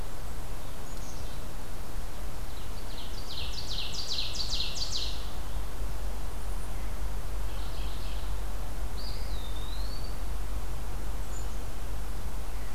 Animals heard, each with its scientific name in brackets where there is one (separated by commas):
Eastern Wood-Pewee (Contopus virens), Ovenbird (Seiurus aurocapilla), Black-capped Chickadee (Poecile atricapillus), Mourning Warbler (Geothlypis philadelphia)